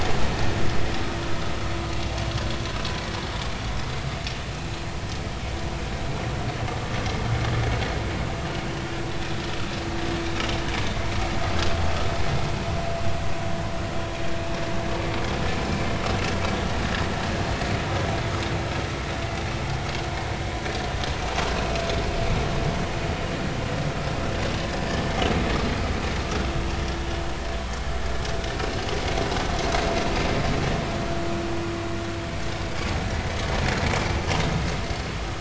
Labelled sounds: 31.1	31.3	vessel noise, 1.3 to 1.5 kHz

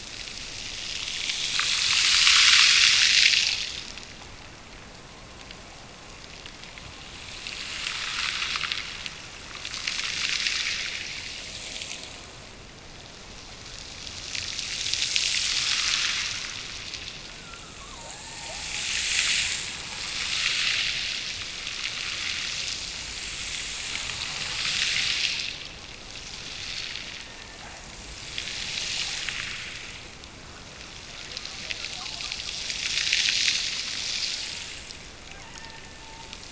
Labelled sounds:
17.2	19.1	killer whale, Bigg's (transient), Gulf of Alaska transient, 0.41 to 2.0 kHz
27.0	27.9	killer whale, Bigg's (transient), Gulf of Alaska transient, 1.6 to 2.0 kHz
35.3	36.5	killer whale, Bigg's (transient), Gulf of Alaska transient, 0.71 to 2.8 kHz

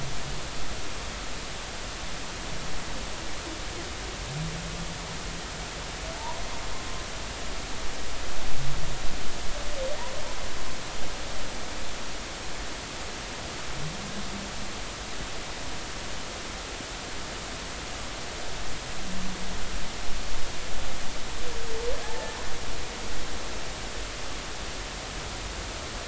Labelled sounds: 6.1	6.4	humpback whale, 0.83 to 1.0 kHz
22.0	22.3	humpback whale, 0.80 to 0.93 kHz

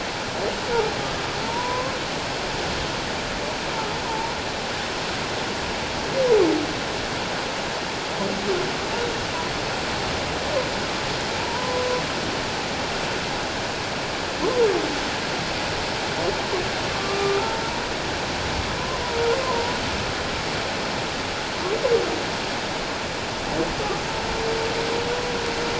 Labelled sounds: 1.4	1.9	humpback whale, 0.88 to 1.1 kHz
4.1	4.3	humpback whale, 0.84 to 1.0 kHz
11.4	11.9	humpback whale, 0.91 to 1.1 kHz
16.9	17.6	humpback whale, 1.1 to 1.4 kHz
19.4	19.7	humpback whale, 0.81 to 1.1 kHz

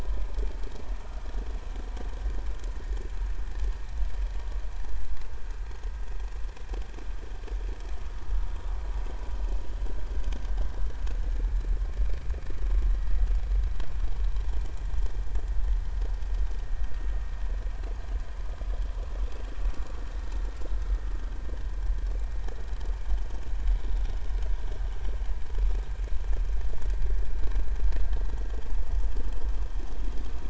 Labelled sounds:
23.1	23.4	vessel noise, 6.4 to 6.6 kHz

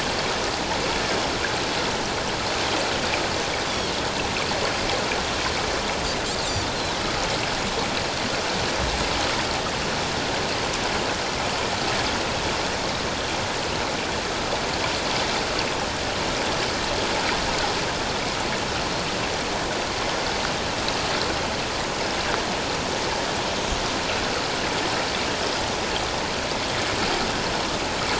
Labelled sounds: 3.7	3.9	Pacific white-sided dolphin, 3.1 to 3.6 kHz
6.4	6.7	Pacific white-sided dolphin, 6.8 to 7.6 kHz

